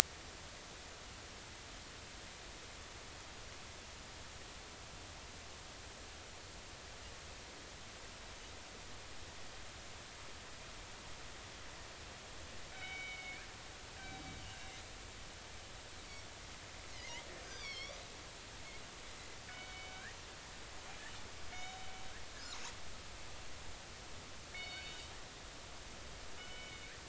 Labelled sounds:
12.7	13.4	killer whale, northern resident, G clan, 1.4 to 4.0 kHz
17.5	18.0	killer whale, northern resident, G clan, 2.1 to 6.2 kHz
19.5	20.2	killer whale, northern resident, G clan, 1.4 to 3.8 kHz
21.5	21.9	killer whale, northern resident, G clan, 2.9 to 6.8 kHz
24.5	25.2	killer whale, northern resident, G clan, 2.1 to 4.5 kHz
26.4	26.9	killer whale, northern resident, G clan, 2.1 to 3.0 kHz

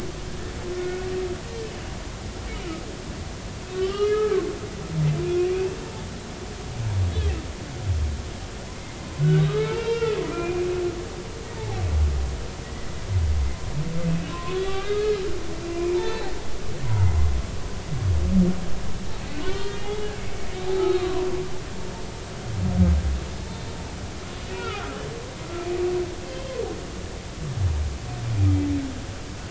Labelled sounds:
3.7	4.4	humpback whale, 0.99 to 3.4 kHz
5.1	5.8	humpback whale, 2.3 to 2.7 kHz
9.4	10.7	humpback whale, 0.83 to 3.3 kHz
11.6	11.8	humpback whale, 0.80 to 0.99 kHz
14.0	15.2	humpback whale, 0.99 to 3.9 kHz
15.9	16.4	humpback whale, 0.80 to 4.5 kHz
19.4	20.1	humpback whale, 0.80 to 4.3 kHz
20.7	21.3	humpback whale, 0.80 to 4.3 kHz
23.5	23.7	humpback whale, 4.0 to 4.1 kHz
24.5	24.8	humpback whale, 1.2 to 2.9 kHz
26.3	26.5	humpback whale, 3.1 to 3.2 kHz

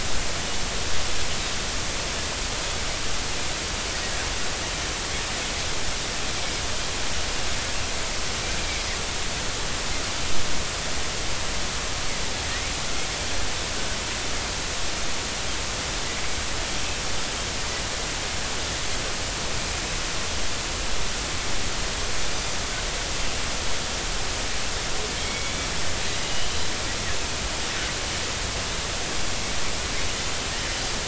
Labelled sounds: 8.6	8.9	Pacific white-sided dolphin, 2.1 to 2.4 kHz
25.2	25.7	Pacific white-sided dolphin, 2.1 to 3.5 kHz
26.2	26.5	Pacific white-sided dolphin, 2.8 to 3.0 kHz

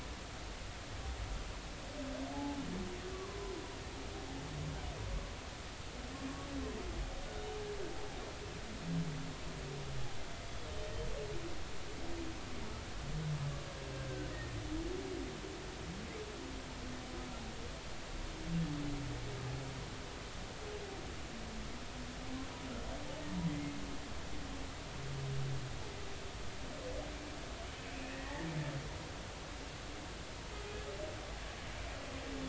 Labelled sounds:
2.3	3.5	humpback whale, 0.80 to 1.2 kHz
23.5	23.7	humpback whale, 1.9 to 2.2 kHz
27.9	28.5	humpback whale, 1.7 to 2.7 kHz

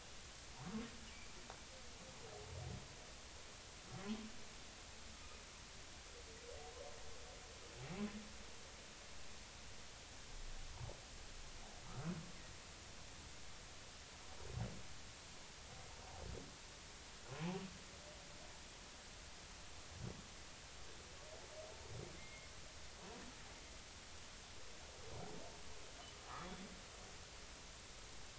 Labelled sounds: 11.9	12.1	humpback whale, 1.2 to 1.5 kHz
17.3	17.6	humpback whale, 0.80 to 1.1 kHz

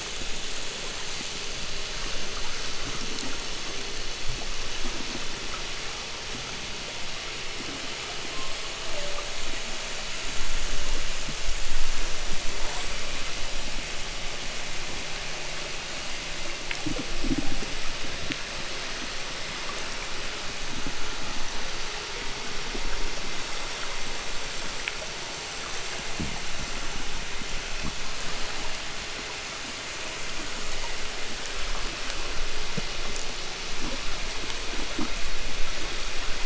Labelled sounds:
0.0	4.3	vessel noise, 0 to 8.0 kHz
2.6	5.5	abiotic sound, 0 to 0.65 kHz
8.0	9.7	killer whale, southern resident, 0.07 to 1.7 kHz
11.8	13.7	killer whale, southern resident, 6.5 to 8.0 kHz

